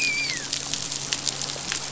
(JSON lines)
{"label": "biophony, dolphin", "recorder": "SoundTrap 500"}